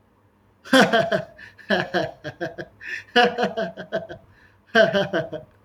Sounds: Laughter